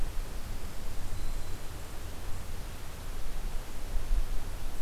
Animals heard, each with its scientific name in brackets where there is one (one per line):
Black-throated Green Warbler (Setophaga virens)